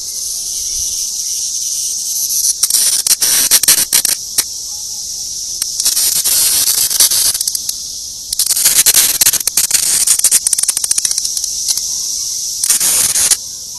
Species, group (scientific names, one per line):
Magicicada cassini
Cicadidae